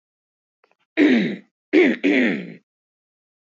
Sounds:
Throat clearing